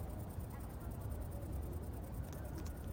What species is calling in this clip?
Tettigonia viridissima